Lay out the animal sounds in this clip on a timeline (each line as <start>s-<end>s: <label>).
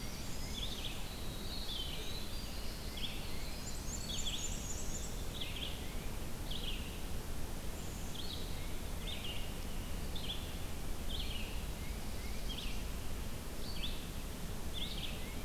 0.0s-4.7s: Winter Wren (Troglodytes hiemalis)
0.0s-15.4s: Red-eyed Vireo (Vireo olivaceus)
0.3s-1.1s: Tufted Titmouse (Baeolophus bicolor)
2.7s-3.7s: Tufted Titmouse (Baeolophus bicolor)
3.1s-5.7s: Black-and-white Warbler (Mniotilta varia)
5.2s-6.1s: Tufted Titmouse (Baeolophus bicolor)
7.7s-8.2s: Black-capped Chickadee (Poecile atricapillus)
8.4s-9.3s: Tufted Titmouse (Baeolophus bicolor)
11.5s-12.5s: Tufted Titmouse (Baeolophus bicolor)
11.7s-13.0s: Black-throated Blue Warbler (Setophaga caerulescens)
14.6s-15.4s: Tufted Titmouse (Baeolophus bicolor)